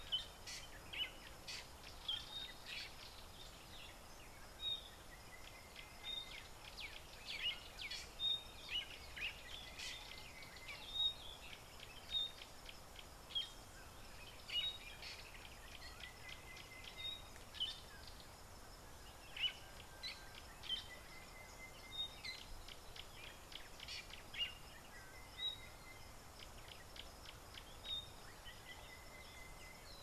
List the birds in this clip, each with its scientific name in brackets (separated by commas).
Gray-backed Camaroptera (Camaroptera brevicaudata), Sulphur-breasted Bushshrike (Telophorus sulfureopectus)